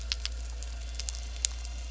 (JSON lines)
{"label": "anthrophony, boat engine", "recorder": "SoundTrap 300"}